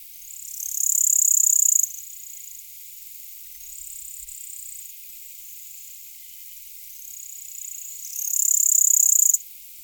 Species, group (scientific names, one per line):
Pholidoptera littoralis
Orthoptera